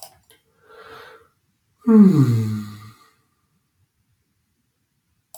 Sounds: Sigh